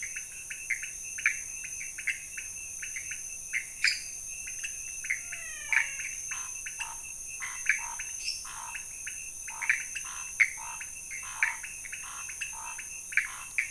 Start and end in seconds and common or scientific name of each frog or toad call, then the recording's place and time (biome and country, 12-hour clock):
0.0	13.7	pointedbelly frog
0.0	13.7	Pithecopus azureus
3.7	4.2	lesser tree frog
5.0	6.1	menwig frog
5.6	13.7	Scinax fuscovarius
Cerrado, Brazil, 1:15am